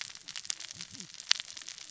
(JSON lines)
{"label": "biophony, cascading saw", "recorder": "SoundTrap 600 or HydroMoth"}